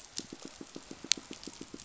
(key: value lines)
label: biophony, pulse
recorder: SoundTrap 500